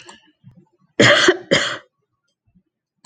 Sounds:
Cough